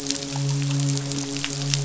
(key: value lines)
label: biophony, midshipman
recorder: SoundTrap 500